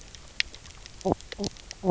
{"label": "biophony, knock croak", "recorder": "SoundTrap 300"}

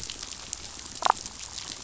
{"label": "biophony, damselfish", "recorder": "SoundTrap 500"}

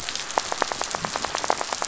{"label": "biophony, rattle", "recorder": "SoundTrap 500"}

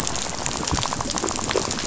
{"label": "biophony, rattle", "recorder": "SoundTrap 500"}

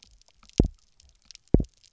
{"label": "biophony, double pulse", "recorder": "SoundTrap 300"}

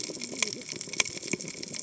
{"label": "biophony, cascading saw", "recorder": "HydroMoth"}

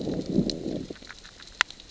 {"label": "biophony, growl", "recorder": "SoundTrap 600 or HydroMoth"}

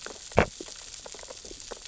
{"label": "biophony, sea urchins (Echinidae)", "recorder": "SoundTrap 600 or HydroMoth"}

